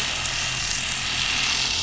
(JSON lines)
{"label": "anthrophony, boat engine", "recorder": "SoundTrap 500"}